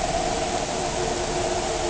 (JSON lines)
{"label": "anthrophony, boat engine", "recorder": "HydroMoth"}